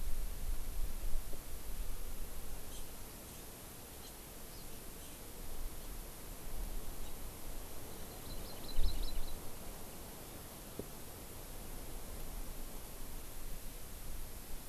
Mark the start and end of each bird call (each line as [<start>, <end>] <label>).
[2.67, 2.87] Hawaii Amakihi (Chlorodrepanis virens)
[3.97, 4.07] Hawaii Amakihi (Chlorodrepanis virens)
[4.97, 5.17] Hawaii Amakihi (Chlorodrepanis virens)
[7.87, 9.47] Hawaii Amakihi (Chlorodrepanis virens)